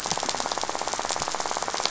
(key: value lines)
label: biophony, rattle
recorder: SoundTrap 500